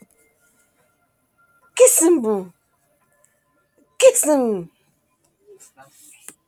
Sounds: Sneeze